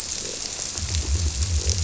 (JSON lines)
{"label": "biophony", "recorder": "SoundTrap 300"}